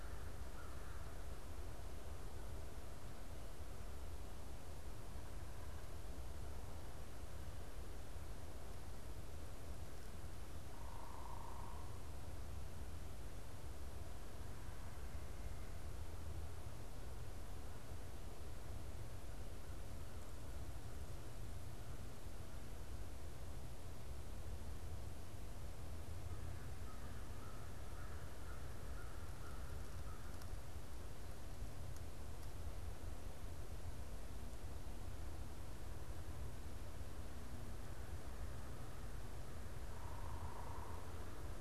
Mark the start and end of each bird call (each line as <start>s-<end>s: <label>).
0.0s-1.6s: American Crow (Corvus brachyrhynchos)
10.5s-12.2s: unidentified bird
19.1s-22.5s: American Crow (Corvus brachyrhynchos)
26.1s-30.9s: American Crow (Corvus brachyrhynchos)
39.8s-41.2s: unidentified bird